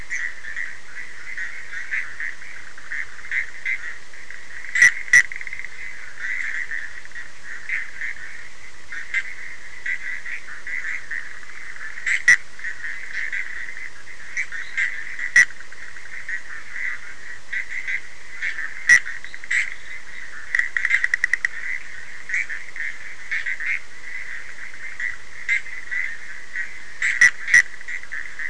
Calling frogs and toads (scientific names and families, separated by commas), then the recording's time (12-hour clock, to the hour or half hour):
Boana bischoffi (Hylidae)
1:30am